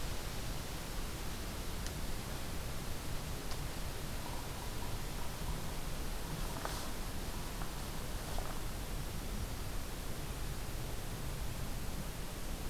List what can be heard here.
Yellow-bellied Sapsucker